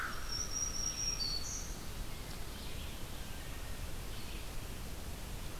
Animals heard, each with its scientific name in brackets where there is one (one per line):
Black-throated Green Warbler (Setophaga virens)
Wood Thrush (Hylocichla mustelina)
Red-eyed Vireo (Vireo olivaceus)